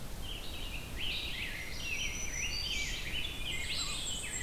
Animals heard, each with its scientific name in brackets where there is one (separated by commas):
Red-eyed Vireo (Vireo olivaceus), Black-throated Green Warbler (Setophaga virens), Black-and-white Warbler (Mniotilta varia), Rose-breasted Grosbeak (Pheucticus ludovicianus)